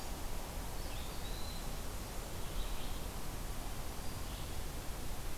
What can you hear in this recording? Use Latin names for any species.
Vireo olivaceus, Contopus virens